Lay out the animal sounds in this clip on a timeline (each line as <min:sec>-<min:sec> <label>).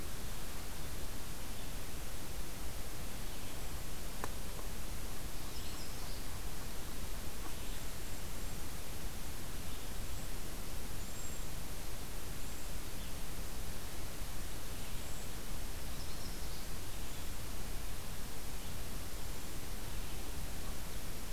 0:00.0-0:08.2 Red-eyed Vireo (Vireo olivaceus)
0:05.1-0:06.6 Yellow-rumped Warbler (Setophaga coronata)
0:07.4-0:11.7 Cedar Waxwing (Bombycilla cedrorum)
0:15.8-0:16.9 Yellow-rumped Warbler (Setophaga coronata)